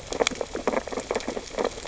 {"label": "biophony, sea urchins (Echinidae)", "recorder": "SoundTrap 600 or HydroMoth"}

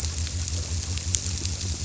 {"label": "biophony", "recorder": "SoundTrap 300"}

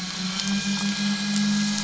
{"label": "anthrophony, boat engine", "recorder": "SoundTrap 500"}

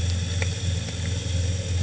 {"label": "anthrophony, boat engine", "recorder": "HydroMoth"}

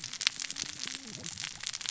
{"label": "biophony, cascading saw", "recorder": "SoundTrap 600 or HydroMoth"}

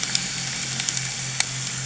{"label": "anthrophony, boat engine", "recorder": "HydroMoth"}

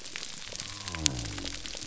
{"label": "biophony", "recorder": "SoundTrap 300"}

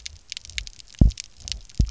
{"label": "biophony, double pulse", "recorder": "SoundTrap 300"}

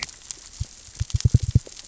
{"label": "biophony, knock", "recorder": "SoundTrap 600 or HydroMoth"}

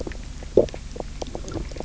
{"label": "biophony", "recorder": "SoundTrap 300"}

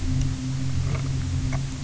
{"label": "anthrophony, boat engine", "recorder": "SoundTrap 300"}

